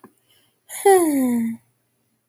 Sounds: Sigh